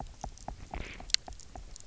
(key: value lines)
label: biophony, knock
recorder: SoundTrap 300